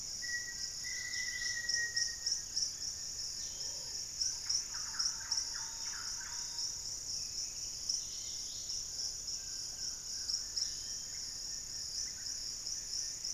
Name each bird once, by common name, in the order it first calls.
Black-faced Antthrush, Collared Trogon, Dusky-capped Greenlet, Plumbeous Pigeon, Wing-barred Piprites, Thrush-like Wren, Yellow-margined Flycatcher, Black-capped Becard, Hauxwell's Thrush